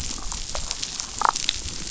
{"label": "biophony, damselfish", "recorder": "SoundTrap 500"}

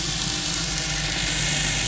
{"label": "anthrophony, boat engine", "recorder": "SoundTrap 500"}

